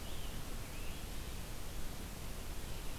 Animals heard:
Red-eyed Vireo (Vireo olivaceus)

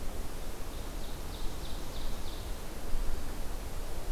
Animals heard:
Ovenbird (Seiurus aurocapilla)

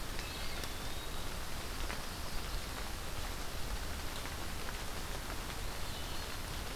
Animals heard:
Eastern Wood-Pewee (Contopus virens)

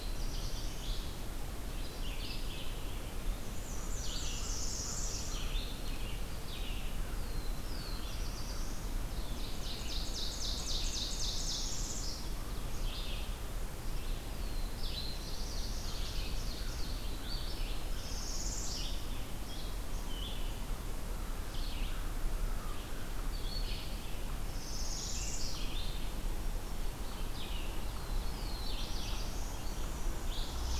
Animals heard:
Red-eyed Vireo (Vireo olivaceus)
Black-and-white Warbler (Mniotilta varia)
American Crow (Corvus brachyrhynchos)
Ovenbird (Seiurus aurocapilla)
Black-throated Blue Warbler (Setophaga caerulescens)
Northern Parula (Setophaga americana)

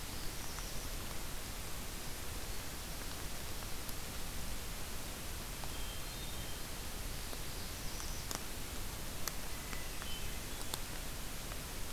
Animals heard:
Hermit Thrush (Catharus guttatus)
Black-throated Blue Warbler (Setophaga caerulescens)

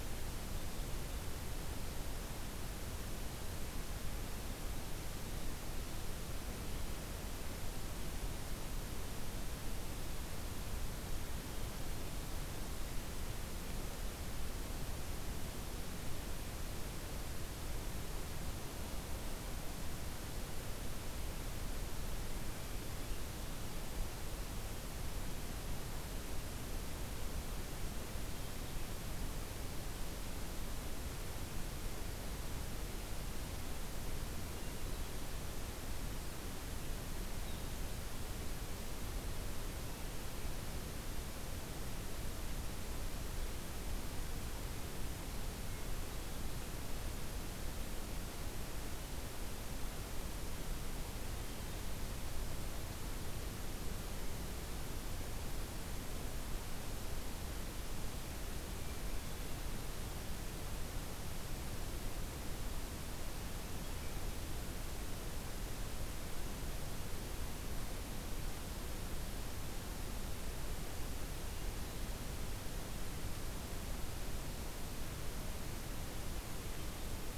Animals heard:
Hermit Thrush (Catharus guttatus)

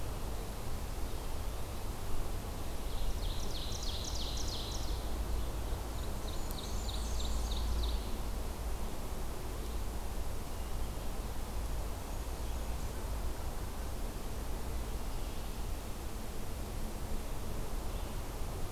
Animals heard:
Ovenbird (Seiurus aurocapilla)
Blackburnian Warbler (Setophaga fusca)

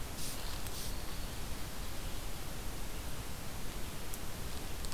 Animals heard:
Red-eyed Vireo (Vireo olivaceus)
Black-throated Green Warbler (Setophaga virens)

